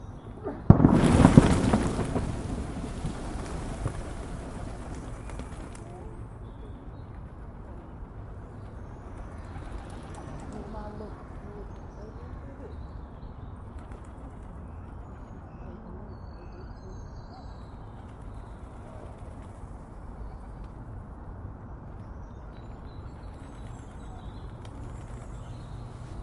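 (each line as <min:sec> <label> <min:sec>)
0:00.0 Birds suddenly take flight. 0:06.1
0:06.1 Nature sounds and birds chirp in a calm environment. 0:26.2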